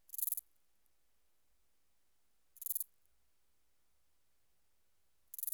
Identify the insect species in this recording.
Stauroderus scalaris